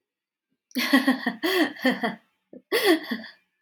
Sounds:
Laughter